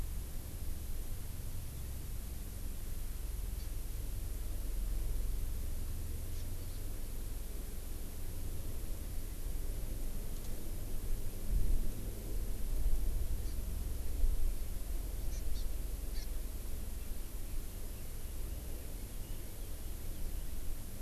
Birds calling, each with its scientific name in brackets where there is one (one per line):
Hawaii Amakihi (Chlorodrepanis virens)